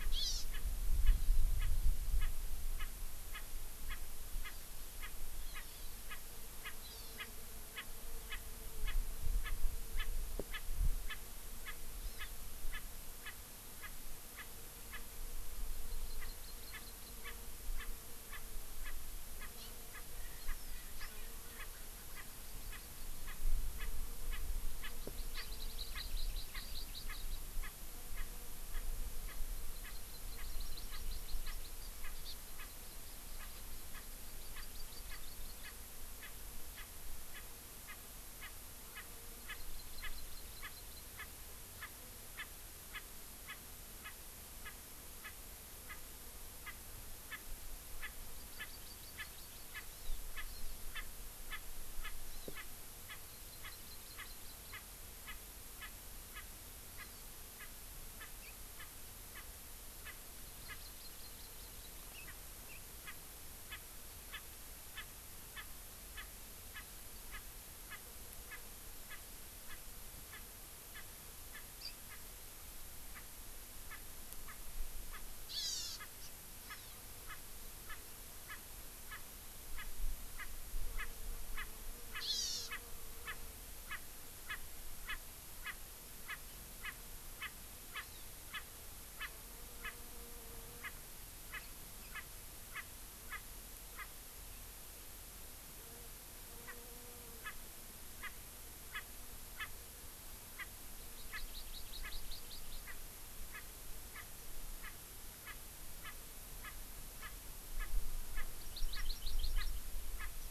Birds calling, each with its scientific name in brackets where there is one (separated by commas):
Hawaii Amakihi (Chlorodrepanis virens), Erckel's Francolin (Pternistis erckelii)